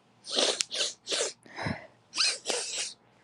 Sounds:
Sniff